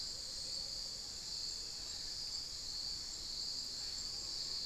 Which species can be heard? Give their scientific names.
Momotus momota